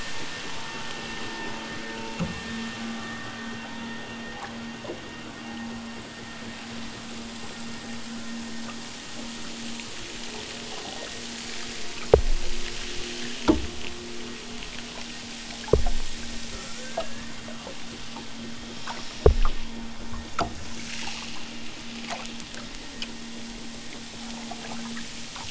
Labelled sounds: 16.4	17.6	killer whale, southern Alaska resident, 1.4 to 8.0 kHz

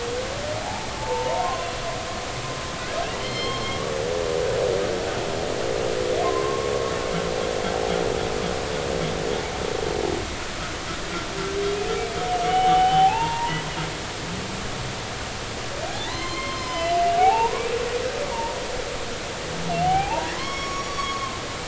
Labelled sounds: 0.6	1.8	humpback whale, 0.80 to 2.8 kHz
3.2	3.8	humpback whale, 2.0 to 5.4 kHz
6.2	6.7	humpback whale, 0.99 to 1.2 kHz
12.4	13.5	humpback whale, 0.80 to 3.1 kHz
16.0	17.5	humpback whale, 0.80 to 5.2 kHz
18.3	18.5	humpback whale, 0.86 to 1.1 kHz
19.8	21.4	humpback whale, 0.80 to 5.7 kHz

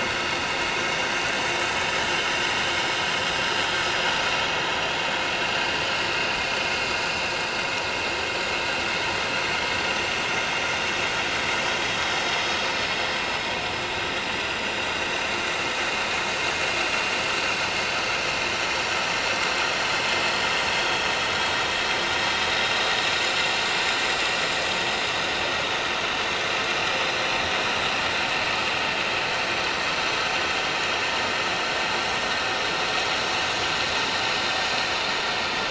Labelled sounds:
10.3	11.1	vessel noise, 6.2 to 6.8 kHz
20.8	21.1	vessel noise, 3.2 to 3.3 kHz

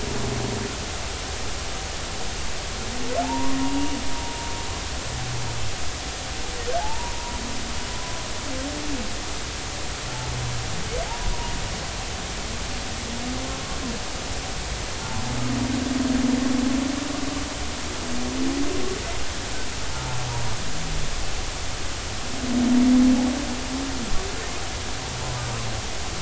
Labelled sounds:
3.2	4.0	humpback whale, 0.80 to 2.9 kHz
6.8	7.4	humpback whale, 0.80 to 1.1 kHz
11.1	11.3	humpback whale, 0.83 to 1.0 kHz
19.9	20.2	humpback whale, 0.86 to 0.93 kHz
25.3	25.6	humpback whale, 1.1 to 1.3 kHz

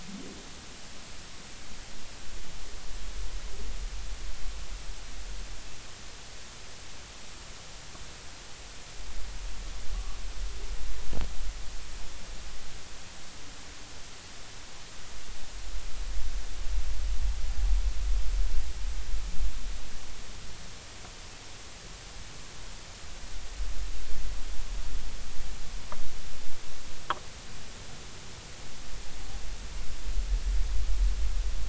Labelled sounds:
9.9	10.2	humpback whale, 1.1 to 1.2 kHz

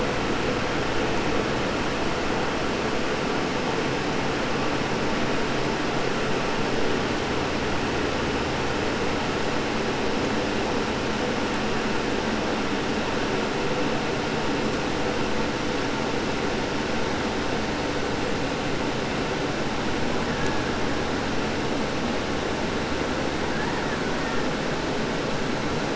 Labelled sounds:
20.3	21.2	killer whale, Bigg's (transient), 0.44 to 2.2 kHz
23.0	24.7	killer whale, Bigg's (transient), 0.69 to 2.5 kHz

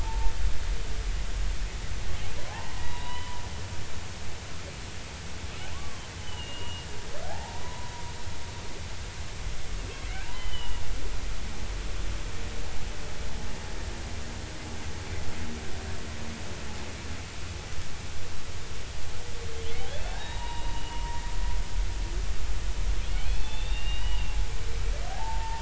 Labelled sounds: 2.4	3.4	humpback whale, 0.80 to 4.1 kHz
5.7	6.9	humpback whale, 0.96 to 3.1 kHz
7.2	7.9	humpback whale, 0.80 to 1.0 kHz
10.2	10.8	humpback whale, 0.86 to 3.1 kHz
20.1	21.2	humpback whale, 0.80 to 3.9 kHz
23.2	25.6	humpback whale, 0.80 to 3.8 kHz

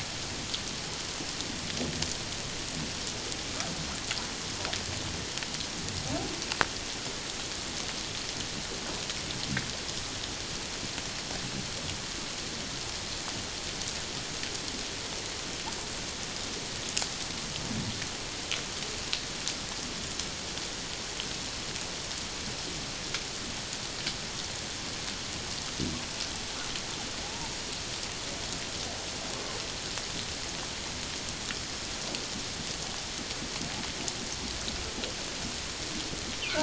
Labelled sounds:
27.2	27.5	humpback whale, 0.78 to 0.97 kHz

